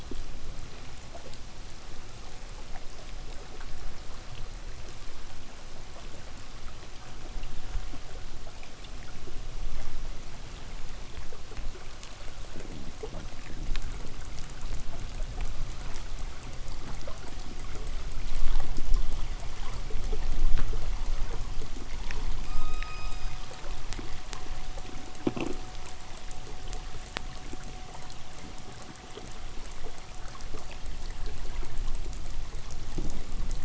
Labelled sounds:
2.7	7.5	abiotic sound, 0.02 to 2.1 kHz
12.4	14.4	fish, 0 to 0.76 kHz
22.3	23.6	killer whale, K pod, call S16, 0.82 to 8.0 kHz
25.1	26.0	noise likely from the mooring, 0 to 4.3 kHz

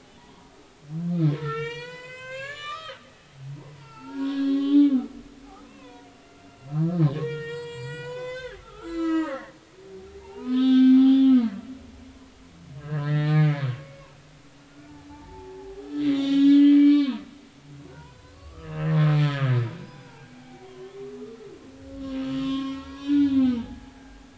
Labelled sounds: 0.2	0.5	humpback whale, 0.90 to 1.2 kHz
1.3	6.1	humpback whale, 0.80 to 8.0 kHz
6.4	9.5	humpback whale, 0.80 to 8.0 kHz
10.0	11.9	humpback whale, 0.80 to 4.5 kHz
12.8	14.1	humpback whale, 1.1 to 5.1 kHz
14.7	21.0	humpback whale, 0.80 to 7.2 kHz
22.4	23.9	humpback whale, 0.80 to 5.9 kHz

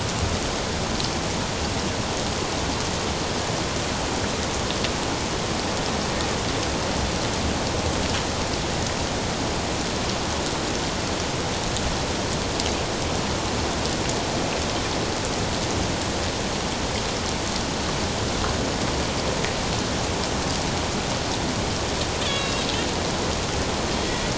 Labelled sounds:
22.2	22.6	Pacific white-sided dolphin, 2.7 to 4.0 kHz

